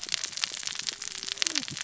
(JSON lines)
{"label": "biophony, cascading saw", "recorder": "SoundTrap 600 or HydroMoth"}